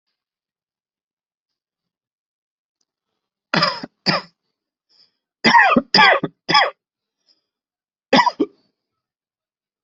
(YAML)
expert_labels:
- quality: good
  cough_type: dry
  dyspnea: false
  wheezing: false
  stridor: false
  choking: false
  congestion: false
  nothing: true
  diagnosis: upper respiratory tract infection
  severity: mild
age: 33
gender: male
respiratory_condition: true
fever_muscle_pain: false
status: healthy